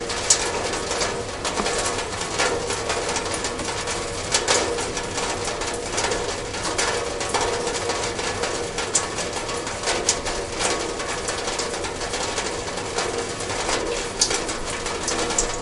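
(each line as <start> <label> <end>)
0.0 Rain falls steadily on a tin roof. 15.6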